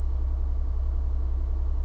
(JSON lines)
{"label": "anthrophony, boat engine", "recorder": "SoundTrap 300"}